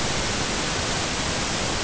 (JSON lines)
{"label": "ambient", "recorder": "HydroMoth"}